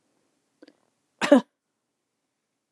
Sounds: Cough